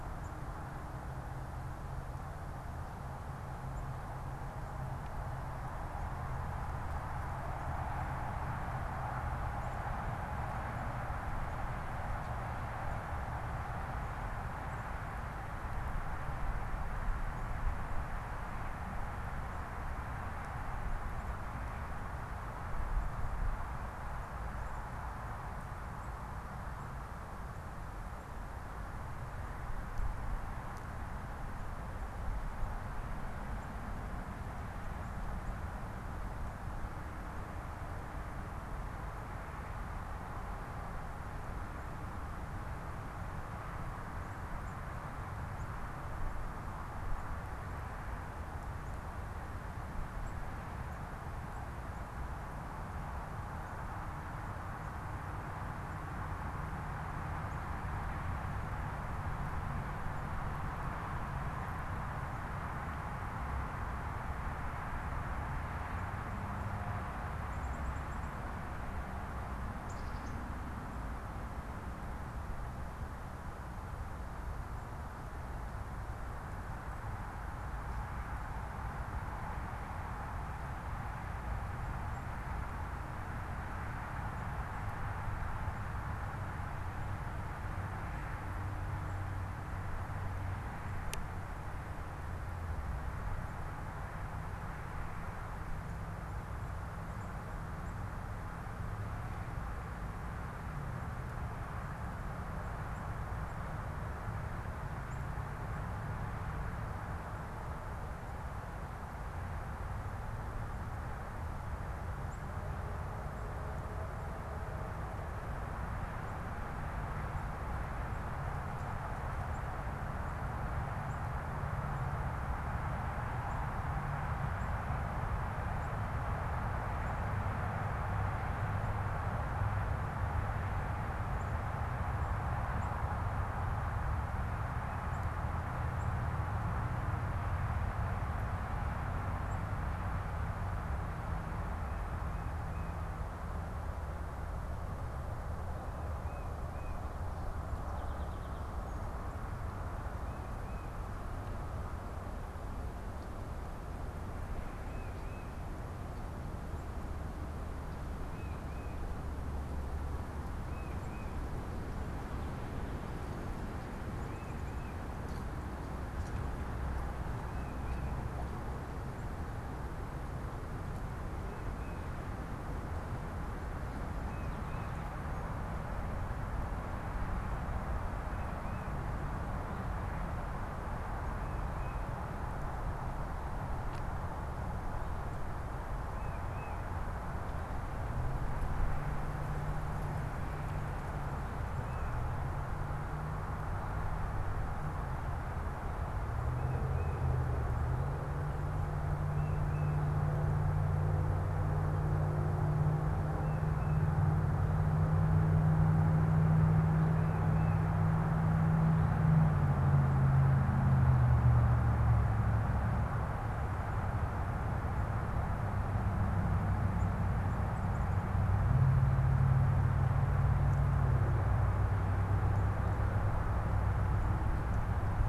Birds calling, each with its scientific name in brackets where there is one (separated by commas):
Tufted Titmouse (Baeolophus bicolor), Black-capped Chickadee (Poecile atricapillus)